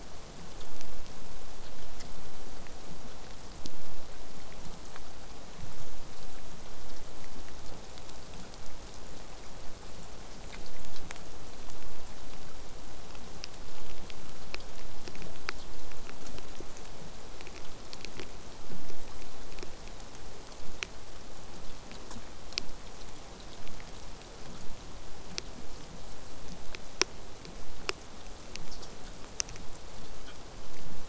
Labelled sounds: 20.6	25.6	vessel noise, 0 to 8.0 kHz

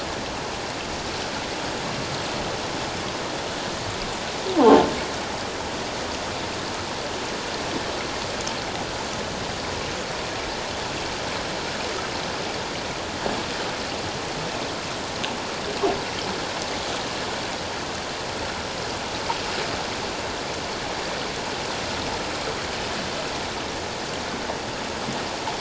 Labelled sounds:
4.6	4.8	croaking sound likely from a nearby submerged object, 0.78 to 1.1 kHz

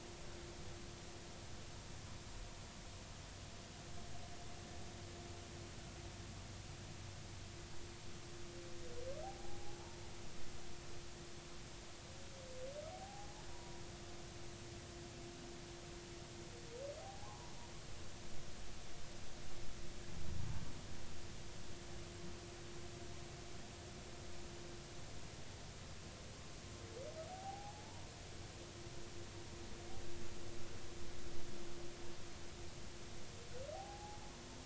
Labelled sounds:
9.2	9.8	humpback whale, 0.80 to 0.90 kHz
12.9	13.8	humpback whale, 0.80 to 1.0 kHz
17.0	17.5	humpback whale, 0.80 to 1.1 kHz
27.3	28.1	humpback whale, 0.80 to 1.1 kHz
33.7	34.2	humpback whale, 0.80 to 0.90 kHz

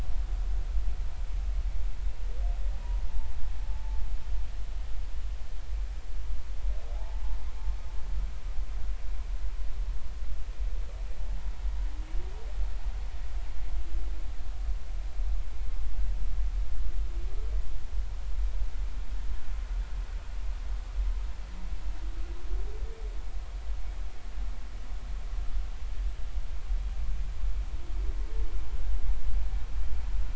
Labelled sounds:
3.6	4.0	humpback whale, 0.83 to 0.93 kHz
7.0	7.2	humpback whale, 0.80 to 1.1 kHz

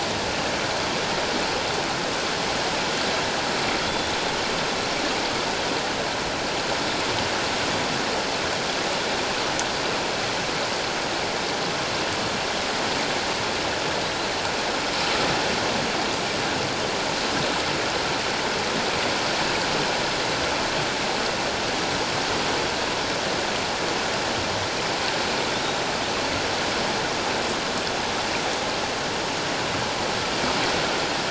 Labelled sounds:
3.8	4.1	killer whale, northern resident, G clan, 3.2 to 3.6 kHz

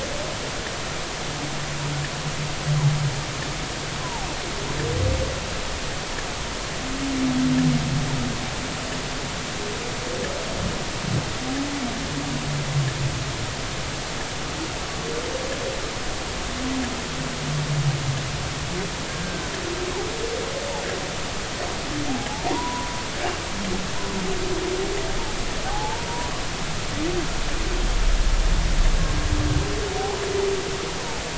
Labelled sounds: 4.0	4.3	humpback whale, 0.80 to 1.1 kHz
19.1	19.5	humpback whale, 1.5 to 1.7 kHz
22.5	22.9	humpback whale, 0.90 to 1.1 kHz
25.7	26.1	humpback whale, 0.80 to 0.99 kHz
30.0	30.2	humpback whale, 0.80 to 1.0 kHz

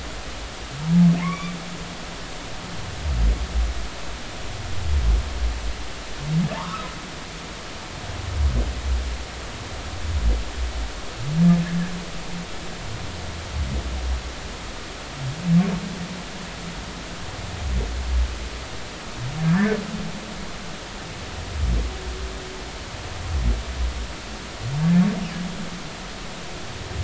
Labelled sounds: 1.2	1.5	humpback whale, 0.99 to 2.4 kHz
6.5	6.9	humpback whale, 0.86 to 1.5 kHz
19.5	19.8	humpback whale, 1.5 to 1.9 kHz

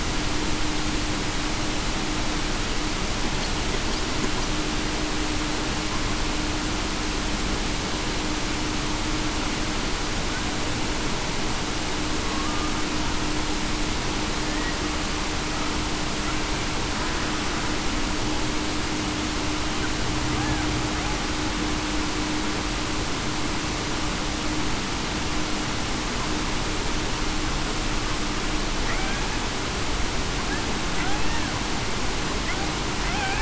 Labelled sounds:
12.2	12.7	killer whale, Bigg's (transient), 1.1 to 1.2 kHz
33.1	33.4	killer whale, Bigg's (transient), 0.68 to 0.89 kHz

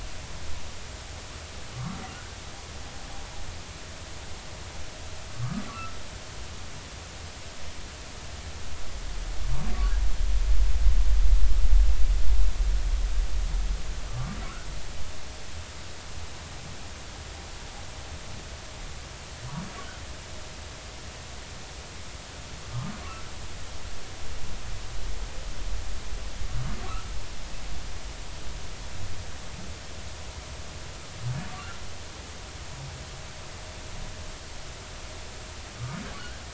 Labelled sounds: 1.7	2.4	humpback whale, 1.1 to 1.6 kHz
5.3	5.9	humpback whale, 1.1 to 1.4 kHz
14.1	14.4	humpback whale, 1.1 to 1.3 kHz
35.8	36.0	humpback whale, 1.1 to 1.3 kHz

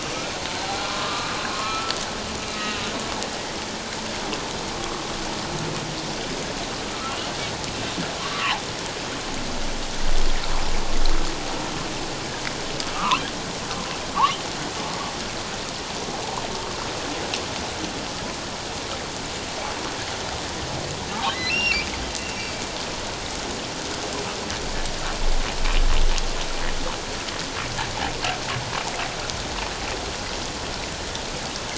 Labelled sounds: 0.6	2.0	humpback whale, 1.0 to 4.2 kHz
2.5	2.9	humpback whale, 2.6 to 3.9 kHz
8.2	8.6	humpback whale, 0.78 to 1.3 kHz
12.9	13.3	humpback whale, 0.91 to 3.5 kHz
21.5	21.9	humpback whale, 2.2 to 5.7 kHz

